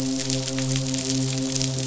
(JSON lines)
{"label": "biophony, midshipman", "recorder": "SoundTrap 500"}